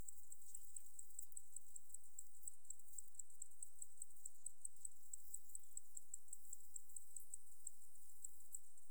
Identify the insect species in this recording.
Decticus albifrons